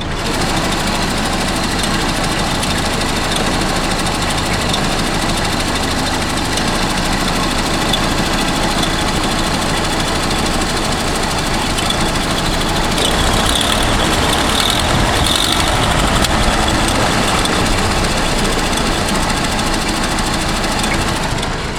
Can the man be heard laughing?
no